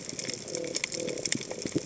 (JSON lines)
{"label": "biophony", "recorder": "HydroMoth"}